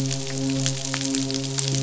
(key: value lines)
label: biophony, midshipman
recorder: SoundTrap 500